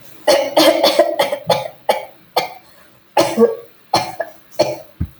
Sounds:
Cough